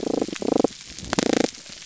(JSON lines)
{"label": "biophony, damselfish", "recorder": "SoundTrap 300"}